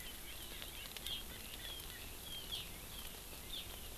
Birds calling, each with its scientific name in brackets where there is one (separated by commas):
Erckel's Francolin (Pternistis erckelii)